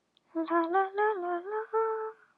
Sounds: Sigh